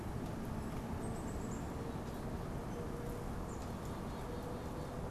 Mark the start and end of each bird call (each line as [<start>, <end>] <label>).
[0.00, 5.10] Black-capped Chickadee (Poecile atricapillus)